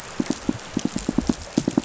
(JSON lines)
{"label": "biophony, pulse", "recorder": "SoundTrap 500"}